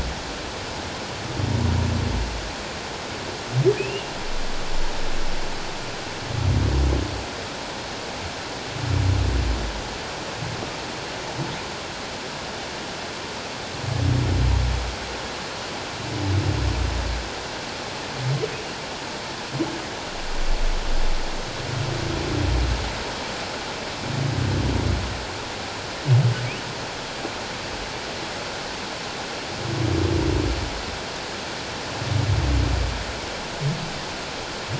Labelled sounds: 3.8	4.1	humpback whale, 2.3 to 3.0 kHz

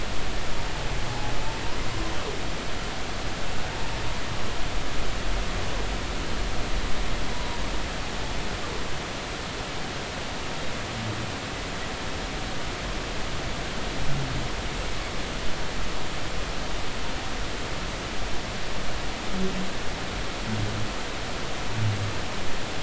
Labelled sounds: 7.3	7.6	humpback whale, 0.90 to 1.1 kHz

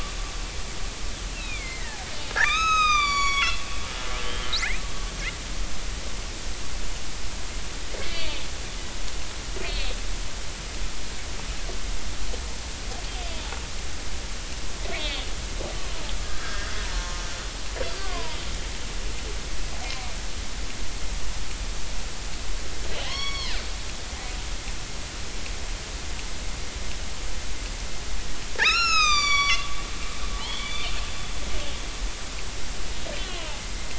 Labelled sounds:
1.3	3.6	killer whale, northern resident, 0.96 to 8.0 kHz
4.1	4.8	killer whale, northern resident, 1.3 to 3.3 kHz
8.0	8.3	killer whale, northern resident, 2.1 to 4.8 kHz
9.6	9.9	killer whale, northern resident, 2.1 to 4.4 kHz
14.9	15.2	killer whale, northern resident, 1.9 to 2.6 kHz
16.2	17.2	killer whale, northern resident, 1.0 to 1.7 kHz
18.0	18.4	killer whale, northern resident, 0.90 to 1.2 kHz
19.8	20.1	killer whale, northern resident, 2.2 to 2.5 kHz
23.0	23.6	killer whale, northern resident, 0.93 to 5.7 kHz
28.6	29.7	killer whale, northern resident, 1.1 to 7.7 kHz
30.4	30.9	killer whale, northern resident, 2.1 to 4.5 kHz
33.1	33.6	killer whale, northern resident, 0.80 to 3.2 kHz

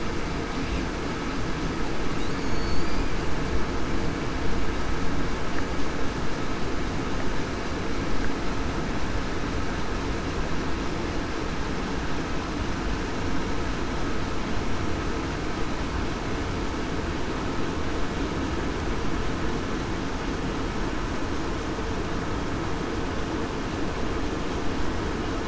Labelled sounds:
2.4	2.7	killer whale, southern resident, 6.6 to 6.7 kHz

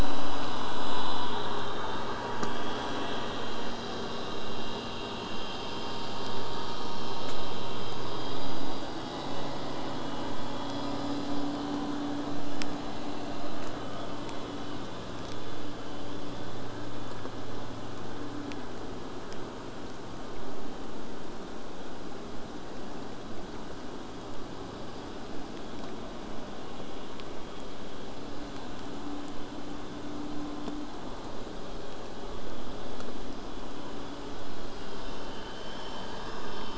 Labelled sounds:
22.3	27.3	vessel noise, 0 to 8.0 kHz

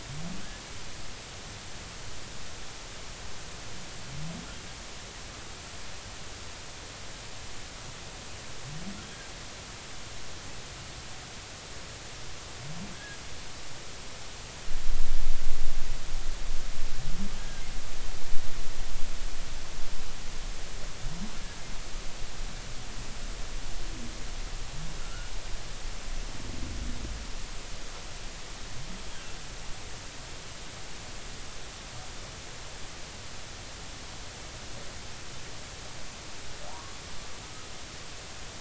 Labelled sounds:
12.9	13.2	humpback whale, 1.5 to 1.8 kHz
17.4	17.6	humpback whale, 1.5 to 1.7 kHz
25.0	25.3	humpback whale, 1.3 to 1.5 kHz
36.7	37.7	humpback whale, 0.80 to 1.4 kHz

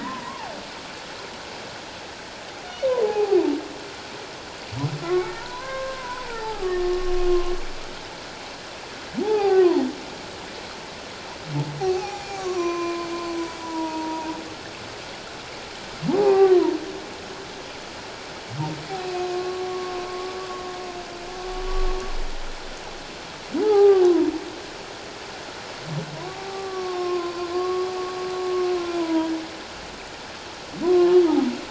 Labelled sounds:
0.0	0.5	humpback whale, 0.78 to 1.1 kHz
2.9	3.4	humpback whale, 0.78 to 1.1 kHz
5.4	7.1	humpback whale, 0.78 to 1.9 kHz
9.2	9.8	humpback whale, 0.78 to 2.0 kHz
11.8	14.3	humpback whale, 0.78 to 7.0 kHz
16.1	16.7	humpback whale, 0.78 to 2.0 kHz
19.0	20.3	humpback whale, 1.0 to 2.6 kHz
23.6	24.3	humpback whale, 0.78 to 1.3 kHz
26.2	27.9	humpback whale, 0.78 to 4.7 kHz
29.0	29.4	humpback whale, 0.91 to 1.8 kHz
30.8	31.2	humpback whale, 0.94 to 1.1 kHz

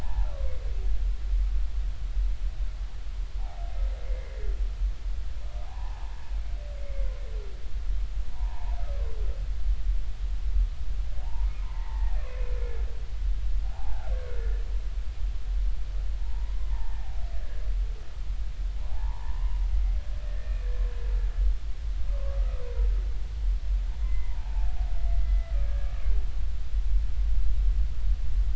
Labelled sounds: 0.0	0.3	humpback whale, 0.80 to 1.8 kHz
3.4	4.4	humpback whale, 0.80 to 2.2 kHz
5.6	6.0	humpback whale, 0.80 to 1.1 kHz
8.3	8.8	humpback whale, 0.80 to 1.1 kHz
11.2	12.2	humpback whale, 0.80 to 2.2 kHz
13.6	14.6	humpback whale, 0.80 to 1.8 kHz
16.2	17.2	humpback whale, 0.80 to 1.1 kHz
18.9	19.6	humpback whale, 0.80 to 1.2 kHz
20.2	20.6	humpback whale, 1.7 to 1.9 kHz
22.1	22.4	humpback whale, 0.99 to 1.3 kHz
24.0	24.7	humpback whale, 0.80 to 2.1 kHz
25.2	26.1	humpback whale, 1.1 to 2.0 kHz

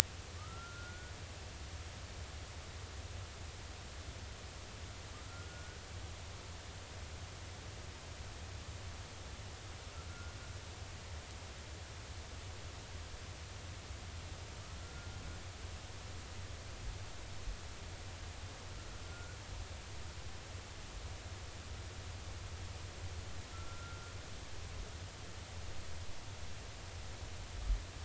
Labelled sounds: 0.4	1.1	humpback whale, 1.2 to 1.6 kHz
5.2	5.8	humpback whale, 1.3 to 1.6 kHz
10.0	10.3	humpback whale, 1.3 to 1.5 kHz
14.8	15.1	humpback whale, 1.3 to 1.4 kHz
19.0	19.4	humpback whale, 1.4 to 1.5 kHz
23.5	24.1	humpback whale, 1.3 to 1.4 kHz

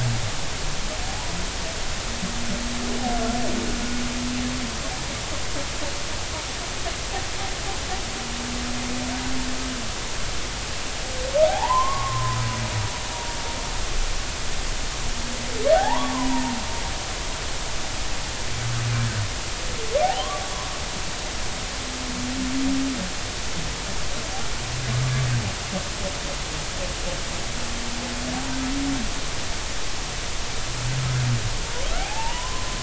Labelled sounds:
1.1	1.3	humpback whale, 0.80 to 1.0 kHz
11.5	12.4	humpback whale, 0.80 to 1.2 kHz
15.7	16.4	humpback whale, 0.80 to 2.0 kHz
32.0	32.8	humpback whale, 0.80 to 1.1 kHz

